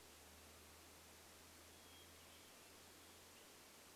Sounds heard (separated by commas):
Hermit Thrush song